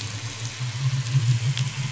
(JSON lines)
{"label": "anthrophony, boat engine", "recorder": "SoundTrap 500"}